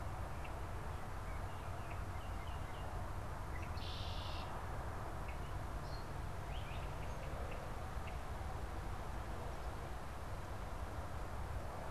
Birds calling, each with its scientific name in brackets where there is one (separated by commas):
unidentified bird, Red-winged Blackbird (Agelaius phoeniceus), Baltimore Oriole (Icterus galbula)